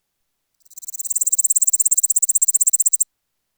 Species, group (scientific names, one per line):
Pholidoptera littoralis
Orthoptera